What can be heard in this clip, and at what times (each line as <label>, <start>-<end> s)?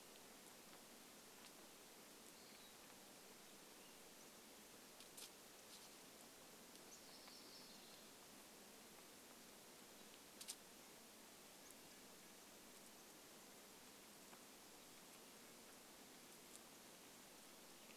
Western Wood-Pewee song, 2-4 s
unidentified bird chip note, 4-8 s
Yellow-rumped Warbler song, 6-8 s
Red-breasted Nuthatch song, 10-12 s
unidentified bird chip note, 10-12 s